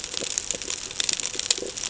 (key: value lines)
label: ambient
recorder: HydroMoth